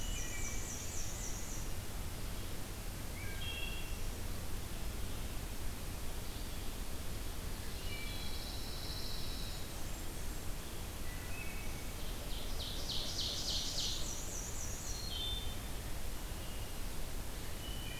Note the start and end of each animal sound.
0.0s-0.7s: Wood Thrush (Hylocichla mustelina)
0.0s-1.9s: Black-and-white Warbler (Mniotilta varia)
3.0s-4.0s: Wood Thrush (Hylocichla mustelina)
7.6s-8.4s: Wood Thrush (Hylocichla mustelina)
7.8s-9.6s: Pine Warbler (Setophaga pinus)
9.3s-10.5s: Blackburnian Warbler (Setophaga fusca)
10.9s-11.9s: Wood Thrush (Hylocichla mustelina)
11.8s-14.2s: Ovenbird (Seiurus aurocapilla)
13.4s-15.0s: Black-and-white Warbler (Mniotilta varia)
14.8s-15.6s: Wood Thrush (Hylocichla mustelina)
17.5s-18.0s: Wood Thrush (Hylocichla mustelina)

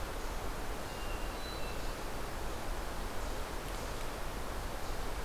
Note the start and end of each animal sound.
0.8s-2.0s: Hermit Thrush (Catharus guttatus)

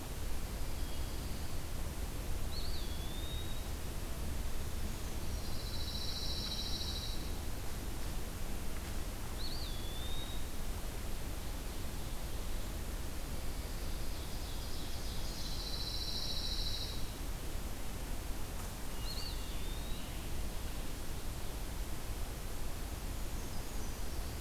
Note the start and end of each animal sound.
0.5s-1.2s: Wood Thrush (Hylocichla mustelina)
0.5s-1.7s: Pine Warbler (Setophaga pinus)
2.3s-4.0s: Eastern Wood-Pewee (Contopus virens)
4.7s-5.6s: Brown Creeper (Certhia americana)
5.3s-7.4s: Pine Warbler (Setophaga pinus)
6.3s-6.8s: Wood Thrush (Hylocichla mustelina)
9.2s-10.7s: Eastern Wood-Pewee (Contopus virens)
13.1s-15.7s: Ovenbird (Seiurus aurocapilla)
15.2s-17.1s: Pine Warbler (Setophaga pinus)
18.7s-19.6s: Wood Thrush (Hylocichla mustelina)
18.8s-20.4s: Eastern Wood-Pewee (Contopus virens)
22.9s-24.4s: Brown Creeper (Certhia americana)

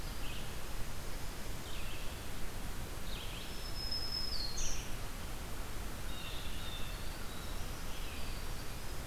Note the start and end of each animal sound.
0.0s-9.1s: Red-eyed Vireo (Vireo olivaceus)
3.2s-4.9s: Black-throated Green Warbler (Setophaga virens)
6.0s-9.1s: Blue Jay (Cyanocitta cristata)
6.8s-9.1s: Winter Wren (Troglodytes hiemalis)

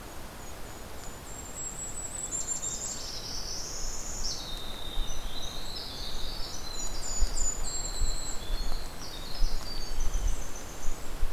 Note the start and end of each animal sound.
0.0s-3.1s: Golden-crowned Kinglet (Regulus satrapa)
2.8s-4.4s: Northern Parula (Setophaga americana)
4.3s-11.3s: Winter Wren (Troglodytes hiemalis)
6.1s-8.6s: Golden-crowned Kinglet (Regulus satrapa)

